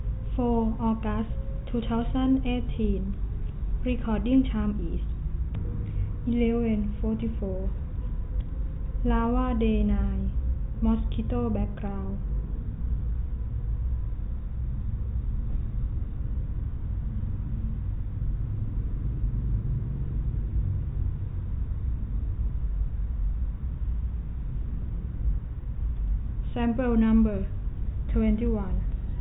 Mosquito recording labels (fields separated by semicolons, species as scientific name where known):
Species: no mosquito; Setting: cup